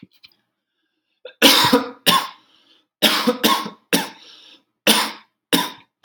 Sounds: Cough